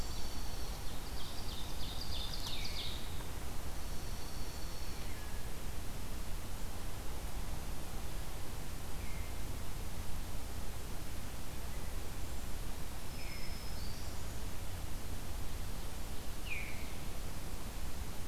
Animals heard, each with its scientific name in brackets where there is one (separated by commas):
Ovenbird (Seiurus aurocapilla), Black-throated Green Warbler (Setophaga virens), Veery (Catharus fuscescens), Dark-eyed Junco (Junco hyemalis)